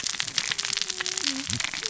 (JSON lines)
{"label": "biophony, cascading saw", "recorder": "SoundTrap 600 or HydroMoth"}